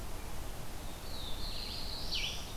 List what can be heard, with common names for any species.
Black-throated Blue Warbler